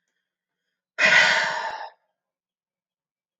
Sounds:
Sigh